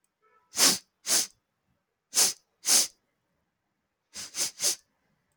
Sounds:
Sniff